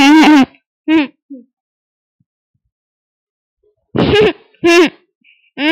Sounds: Laughter